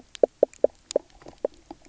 {"label": "biophony, knock croak", "recorder": "SoundTrap 300"}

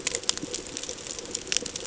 {"label": "ambient", "recorder": "HydroMoth"}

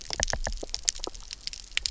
{"label": "biophony, knock", "recorder": "SoundTrap 300"}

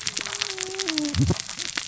{"label": "biophony, cascading saw", "recorder": "SoundTrap 600 or HydroMoth"}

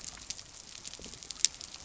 {"label": "biophony", "recorder": "SoundTrap 300"}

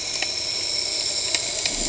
{"label": "anthrophony, boat engine", "recorder": "HydroMoth"}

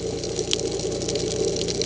{"label": "ambient", "recorder": "HydroMoth"}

